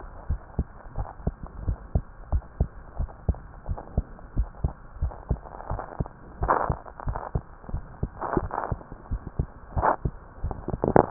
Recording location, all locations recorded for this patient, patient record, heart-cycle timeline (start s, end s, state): tricuspid valve (TV)
aortic valve (AV)+pulmonary valve (PV)+tricuspid valve (TV)+mitral valve (MV)
#Age: Child
#Sex: Male
#Height: 98.0 cm
#Weight: 15.1 kg
#Pregnancy status: False
#Murmur: Absent
#Murmur locations: nan
#Most audible location: nan
#Systolic murmur timing: nan
#Systolic murmur shape: nan
#Systolic murmur grading: nan
#Systolic murmur pitch: nan
#Systolic murmur quality: nan
#Diastolic murmur timing: nan
#Diastolic murmur shape: nan
#Diastolic murmur grading: nan
#Diastolic murmur pitch: nan
#Diastolic murmur quality: nan
#Outcome: Abnormal
#Campaign: 2015 screening campaign
0.00	0.26	unannotated
0.26	0.40	S1
0.40	0.54	systole
0.54	0.68	S2
0.68	0.96	diastole
0.96	1.08	S1
1.08	1.24	systole
1.24	1.36	S2
1.36	1.62	diastole
1.62	1.78	S1
1.78	1.90	systole
1.90	2.04	S2
2.04	2.30	diastole
2.30	2.42	S1
2.42	2.56	systole
2.56	2.70	S2
2.70	2.98	diastole
2.98	3.10	S1
3.10	3.24	systole
3.24	3.40	S2
3.40	3.68	diastole
3.68	3.80	S1
3.80	3.94	systole
3.94	4.08	S2
4.08	4.36	diastole
4.36	4.50	S1
4.50	4.62	systole
4.62	4.74	S2
4.74	5.00	diastole
5.00	5.14	S1
5.14	5.28	systole
5.28	5.42	S2
5.42	5.70	diastole
5.70	5.82	S1
5.82	5.96	systole
5.96	6.10	S2
6.10	6.40	diastole
6.40	6.54	S1
6.54	6.68	systole
6.68	6.80	S2
6.80	7.06	diastole
7.06	7.20	S1
7.20	7.34	systole
7.34	7.44	S2
7.44	7.70	diastole
7.70	7.84	S1
7.84	7.98	systole
7.98	8.10	S2
8.10	8.36	diastole
8.36	8.52	S1
8.52	8.68	systole
8.68	8.80	S2
8.80	9.10	diastole
9.10	9.22	S1
9.22	9.38	systole
9.38	9.50	S2
9.50	9.76	diastole
9.76	9.90	S1
9.90	10.04	systole
10.04	10.16	S2
10.16	10.41	diastole
10.41	10.53	S1
10.53	11.10	unannotated